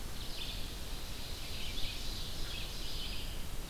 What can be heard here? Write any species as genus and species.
Seiurus aurocapilla, Vireo olivaceus